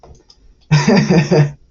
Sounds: Laughter